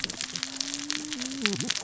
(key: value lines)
label: biophony, cascading saw
recorder: SoundTrap 600 or HydroMoth